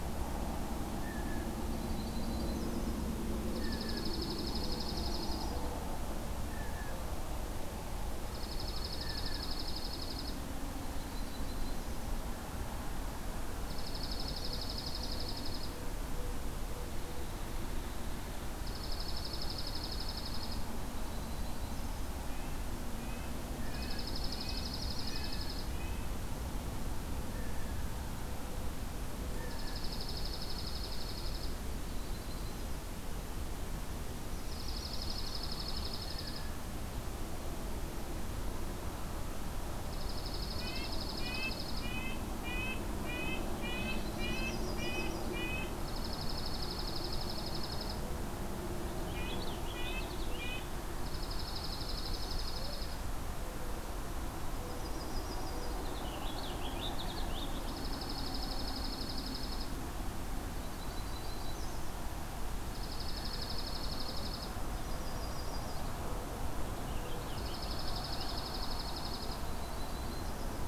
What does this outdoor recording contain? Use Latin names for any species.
Cyanocitta cristata, Setophaga coronata, Junco hyemalis, Sitta canadensis, Haemorhous purpureus